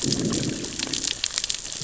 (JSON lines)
{"label": "biophony, growl", "recorder": "SoundTrap 600 or HydroMoth"}